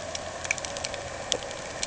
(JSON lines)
{"label": "anthrophony, boat engine", "recorder": "HydroMoth"}